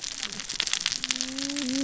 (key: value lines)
label: biophony, cascading saw
recorder: SoundTrap 600 or HydroMoth